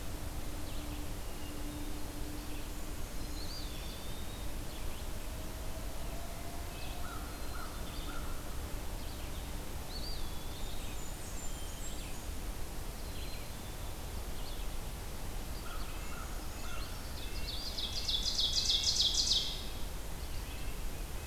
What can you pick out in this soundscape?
Red-eyed Vireo, Eastern Wood-Pewee, American Crow, Black-capped Chickadee, Blackburnian Warbler, Brown Creeper, Ovenbird, Red-breasted Nuthatch